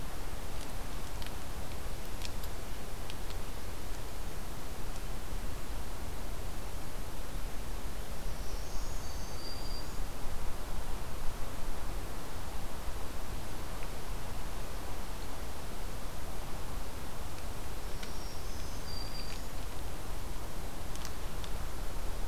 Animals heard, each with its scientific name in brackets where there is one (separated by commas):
Black-throated Green Warbler (Setophaga virens)